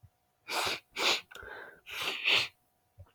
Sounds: Sniff